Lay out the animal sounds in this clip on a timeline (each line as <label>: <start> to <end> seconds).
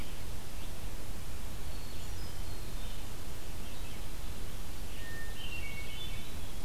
Red-eyed Vireo (Vireo olivaceus): 0.0 to 6.6 seconds
Hermit Thrush (Catharus guttatus): 1.5 to 3.2 seconds
Hermit Thrush (Catharus guttatus): 4.9 to 6.5 seconds